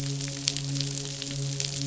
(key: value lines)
label: biophony, midshipman
recorder: SoundTrap 500